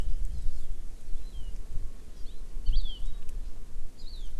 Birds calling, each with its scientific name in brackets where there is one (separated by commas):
Hawaii Amakihi (Chlorodrepanis virens)